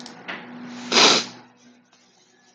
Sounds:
Sniff